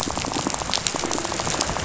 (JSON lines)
{"label": "biophony, rattle", "recorder": "SoundTrap 500"}